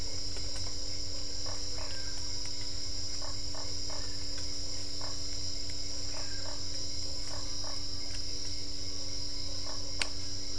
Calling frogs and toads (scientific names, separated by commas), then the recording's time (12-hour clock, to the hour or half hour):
Boana lundii
7pm